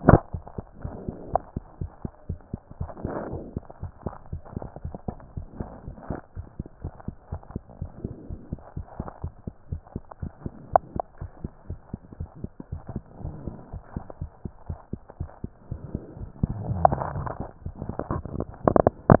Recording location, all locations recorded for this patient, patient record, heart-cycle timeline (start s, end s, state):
mitral valve (MV)
aortic valve (AV)+pulmonary valve (PV)+tricuspid valve (TV)+mitral valve (MV)
#Age: Child
#Sex: Male
#Height: 129.0 cm
#Weight: 21.0 kg
#Pregnancy status: False
#Murmur: Absent
#Murmur locations: nan
#Most audible location: nan
#Systolic murmur timing: nan
#Systolic murmur shape: nan
#Systolic murmur grading: nan
#Systolic murmur pitch: nan
#Systolic murmur quality: nan
#Diastolic murmur timing: nan
#Diastolic murmur shape: nan
#Diastolic murmur grading: nan
#Diastolic murmur pitch: nan
#Diastolic murmur quality: nan
#Outcome: Normal
#Campaign: 2015 screening campaign
0.00	1.77	unannotated
1.77	1.92	S1
1.92	2.00	systole
2.00	2.10	S2
2.10	2.26	diastole
2.26	2.40	S1
2.40	2.50	systole
2.50	2.60	S2
2.60	2.78	diastole
2.78	2.92	S1
2.92	3.02	systole
3.02	3.16	S2
3.16	3.28	diastole
3.28	3.44	S1
3.44	3.54	systole
3.54	3.66	S2
3.66	3.82	diastole
3.82	3.92	S1
3.92	4.02	systole
4.02	4.14	S2
4.14	4.30	diastole
4.30	4.42	S1
4.42	4.56	systole
4.56	4.68	S2
4.68	4.82	diastole
4.82	4.94	S1
4.94	5.04	systole
5.04	5.18	S2
5.18	5.34	diastole
5.34	5.48	S1
5.48	5.56	systole
5.56	5.68	S2
5.68	5.84	diastole
5.84	5.96	S1
5.96	6.08	systole
6.08	6.18	S2
6.18	6.36	diastole
6.36	6.46	S1
6.46	6.56	systole
6.56	6.66	S2
6.66	6.82	diastole
6.82	6.92	S1
6.92	7.04	systole
7.04	7.14	S2
7.14	7.30	diastole
7.30	7.42	S1
7.42	7.50	systole
7.50	7.62	S2
7.62	7.78	diastole
7.78	7.92	S1
7.92	8.02	systole
8.02	8.12	S2
8.12	8.28	diastole
8.28	8.40	S1
8.40	8.50	systole
8.50	8.60	S2
8.60	8.76	diastole
8.76	8.86	S1
8.86	8.96	systole
8.96	9.08	S2
9.08	9.22	diastole
9.22	9.34	S1
9.34	9.46	systole
9.46	9.54	S2
9.54	9.70	diastole
9.70	9.82	S1
9.82	9.92	systole
9.92	10.02	S2
10.02	10.18	diastole
10.18	10.30	S1
10.30	10.42	systole
10.42	10.54	S2
10.54	10.70	diastole
10.70	10.84	S1
10.84	10.92	systole
10.92	11.02	S2
11.02	11.20	diastole
11.20	11.30	S1
11.30	11.42	systole
11.42	11.54	S2
11.54	11.70	diastole
11.70	11.80	S1
11.80	11.90	systole
11.90	12.00	S2
12.00	12.18	diastole
12.18	12.30	S1
12.30	12.40	systole
12.40	12.50	S2
12.50	12.70	diastole
12.70	12.82	S1
12.82	12.90	systole
12.90	13.04	S2
13.04	13.22	diastole
13.22	13.36	S1
13.36	13.44	systole
13.44	13.58	S2
13.58	13.72	diastole
13.72	13.82	S1
13.82	13.92	systole
13.92	14.04	S2
14.04	14.20	diastole
14.20	14.30	S1
14.30	14.44	systole
14.44	14.52	S2
14.52	14.68	diastole
14.68	14.78	S1
14.78	14.92	systole
14.92	15.00	S2
15.00	15.16	diastole
15.16	15.30	S1
15.30	15.42	systole
15.42	15.52	S2
15.52	19.20	unannotated